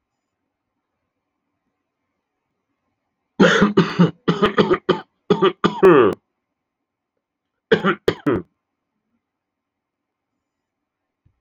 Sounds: Cough